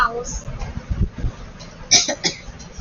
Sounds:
Cough